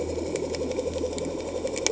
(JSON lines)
{"label": "anthrophony, boat engine", "recorder": "HydroMoth"}